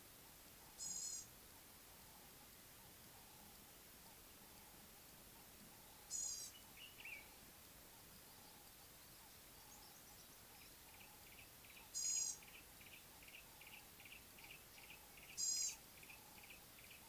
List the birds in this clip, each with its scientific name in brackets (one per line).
Common Bulbul (Pycnonotus barbatus)
Yellow-breasted Apalis (Apalis flavida)
Gray-backed Camaroptera (Camaroptera brevicaudata)